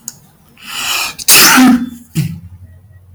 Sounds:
Sneeze